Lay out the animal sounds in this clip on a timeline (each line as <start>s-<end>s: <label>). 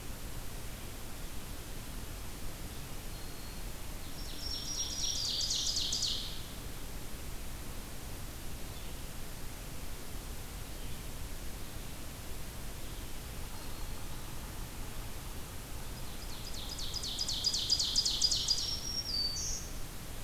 2.9s-5.6s: Black-throated Green Warbler (Setophaga virens)
4.1s-6.5s: Ovenbird (Seiurus aurocapilla)
13.3s-14.1s: Black-throated Green Warbler (Setophaga virens)
16.0s-18.9s: Ovenbird (Seiurus aurocapilla)
18.0s-19.9s: Black-throated Green Warbler (Setophaga virens)